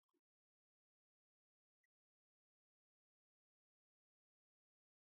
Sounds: Sniff